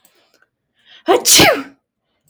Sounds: Sneeze